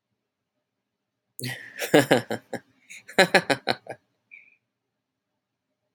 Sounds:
Laughter